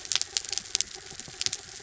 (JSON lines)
{"label": "anthrophony, mechanical", "recorder": "SoundTrap 300"}